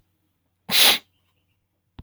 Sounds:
Sniff